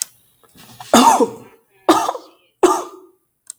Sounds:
Cough